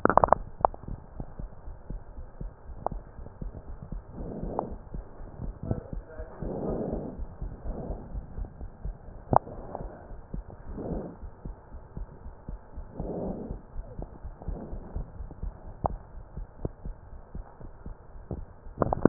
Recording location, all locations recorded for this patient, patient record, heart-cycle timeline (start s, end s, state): pulmonary valve (PV)
aortic valve (AV)+pulmonary valve (PV)+tricuspid valve (TV)+mitral valve (MV)
#Age: Child
#Sex: Male
#Height: nan
#Weight: nan
#Pregnancy status: False
#Murmur: Absent
#Murmur locations: nan
#Most audible location: nan
#Systolic murmur timing: nan
#Systolic murmur shape: nan
#Systolic murmur grading: nan
#Systolic murmur pitch: nan
#Systolic murmur quality: nan
#Diastolic murmur timing: nan
#Diastolic murmur shape: nan
#Diastolic murmur grading: nan
#Diastolic murmur pitch: nan
#Diastolic murmur quality: nan
#Outcome: Normal
#Campaign: 2015 screening campaign
0.00	1.00	unannotated
1.00	1.18	diastole
1.18	1.28	S1
1.28	1.36	systole
1.36	1.50	S2
1.50	1.66	diastole
1.66	1.76	S1
1.76	1.88	systole
1.88	2.02	S2
2.02	2.18	diastole
2.18	2.28	S1
2.28	2.40	systole
2.40	2.52	S2
2.52	2.68	diastole
2.68	2.78	S1
2.78	2.90	systole
2.90	3.02	S2
3.02	3.18	diastole
3.18	3.28	S1
3.28	3.40	systole
3.40	3.52	S2
3.52	3.68	diastole
3.68	3.78	S1
3.78	3.88	systole
3.88	4.02	S2
4.02	4.16	diastole
4.16	4.32	S1
4.32	4.42	systole
4.42	4.54	S2
4.54	4.68	diastole
4.68	4.78	S1
4.78	4.92	systole
4.92	5.06	S2
5.06	5.20	diastole
5.20	5.32	S1
5.32	5.42	systole
5.42	5.56	S2
5.56	5.68	diastole
5.68	5.82	S1
5.82	5.90	systole
5.90	6.04	S2
6.04	6.18	diastole
6.18	6.26	S1
6.26	6.40	systole
6.40	6.54	S2
6.54	6.68	diastole
6.68	6.86	S1
6.86	6.94	systole
6.94	7.04	S2
7.04	7.16	diastole
7.16	7.30	S1
7.30	7.40	systole
7.40	7.50	S2
7.50	7.62	diastole
7.62	7.80	S1
7.80	7.88	systole
7.88	7.98	S2
7.98	8.12	diastole
8.12	8.24	S1
8.24	8.36	systole
8.36	8.48	S2
8.48	8.62	diastole
8.62	8.70	S1
8.70	8.82	systole
8.82	8.96	S2
8.96	9.12	diastole
9.12	19.09	unannotated